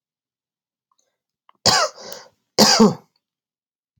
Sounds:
Cough